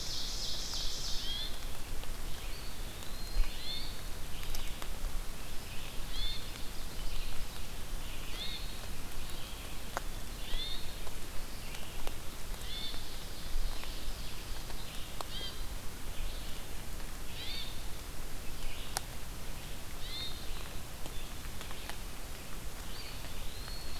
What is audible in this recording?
Ovenbird, Red-eyed Vireo, Hermit Thrush, Eastern Wood-Pewee